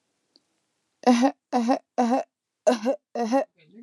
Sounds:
Cough